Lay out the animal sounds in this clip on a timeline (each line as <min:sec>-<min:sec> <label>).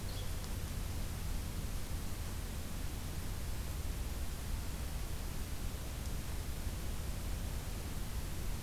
0:00.0-0:00.3 Yellow-bellied Flycatcher (Empidonax flaviventris)